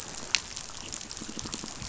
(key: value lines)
label: biophony
recorder: SoundTrap 500